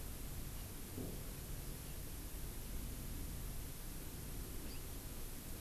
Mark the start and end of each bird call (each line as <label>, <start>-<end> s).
House Finch (Haemorhous mexicanus), 4.7-4.8 s